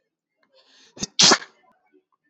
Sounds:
Sneeze